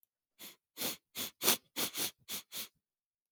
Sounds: Sniff